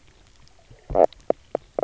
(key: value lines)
label: biophony, knock croak
recorder: SoundTrap 300